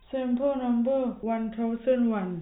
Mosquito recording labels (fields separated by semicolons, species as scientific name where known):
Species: no mosquito; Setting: cup